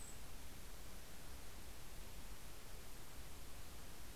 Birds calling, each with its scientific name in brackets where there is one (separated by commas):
Mountain Chickadee (Poecile gambeli)